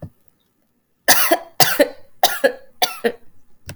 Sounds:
Cough